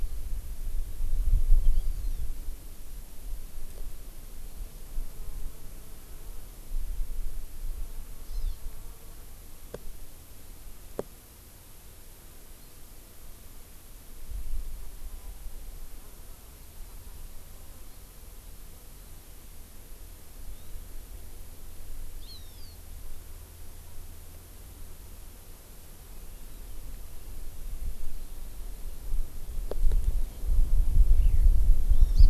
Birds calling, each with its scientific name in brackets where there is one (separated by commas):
Hawaii Amakihi (Chlorodrepanis virens), Eurasian Skylark (Alauda arvensis)